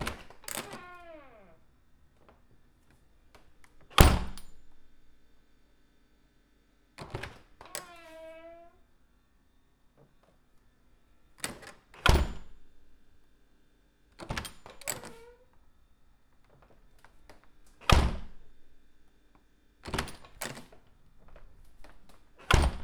Is the noise the result of human action?
yes